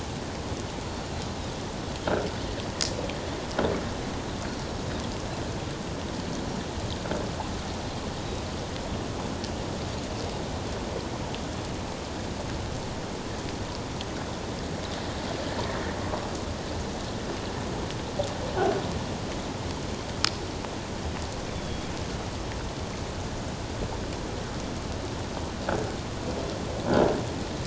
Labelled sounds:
21.5	21.9	Pacific white-sided dolphin, 3.2 to 3.6 kHz

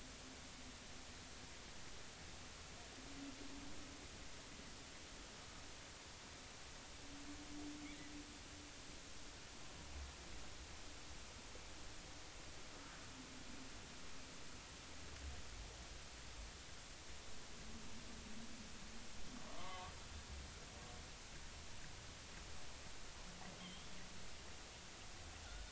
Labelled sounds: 19.6	19.9	killer whale, 0.99 to 2.2 kHz
23.6	23.9	killer whale, 3.0 to 3.5 kHz

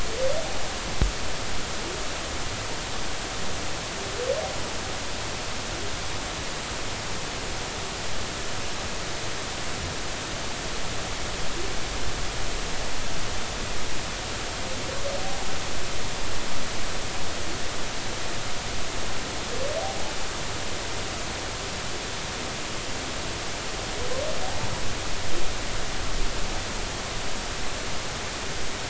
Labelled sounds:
24.4	24.7	humpback whale, 0.80 to 0.99 kHz

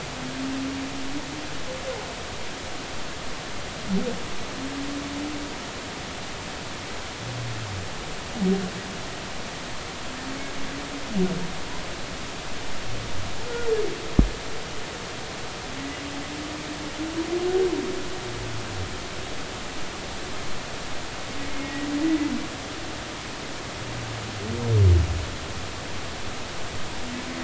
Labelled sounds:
21.6	22.3	humpback whale, 1.8 to 2.0 kHz

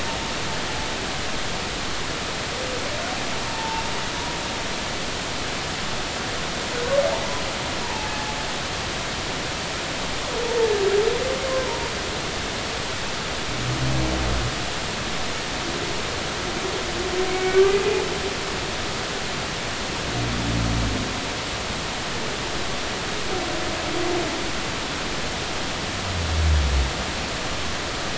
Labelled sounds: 3.5	3.8	humpback whale, 0.83 to 0.96 kHz
7.8	8.1	humpback whale, 0.80 to 0.99 kHz
11.5	11.9	humpback whale, 0.90 to 1.1 kHz
17.3	17.7	humpback whale, 1.4 to 2.3 kHz

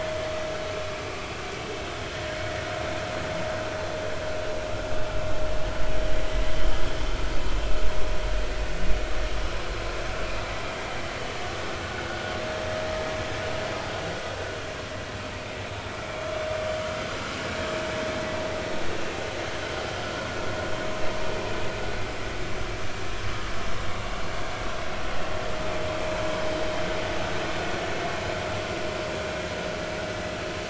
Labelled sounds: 20.0	20.3	vessel noise, 1.3 to 1.5 kHz

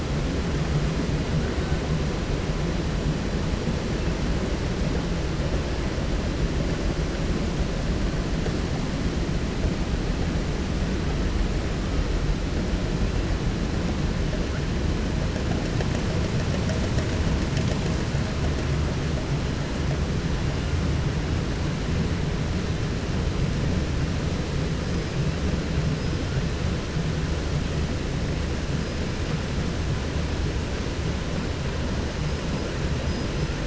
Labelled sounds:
10.9	11.2	killer whale, 7.99 to 8.00 kHz
20.3	20.8	killer whale, 1.2 to 3.7 kHz
24.7	25.5	killer whale, 1.2 to 8.0 kHz
25.8	26.5	killer whale, 1.1 to 5.3 kHz
28.8	29.5	killer whale, 1.4 to 5.3 kHz
32.1	32.7	killer whale, 3.7 to 8.0 kHz
33.0	33.5	killer whale, 4.5 to 8.0 kHz

